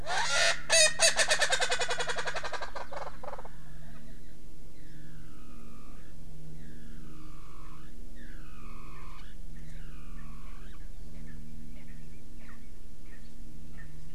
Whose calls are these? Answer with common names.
Erckel's Francolin